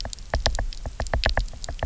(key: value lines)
label: biophony, knock
recorder: SoundTrap 300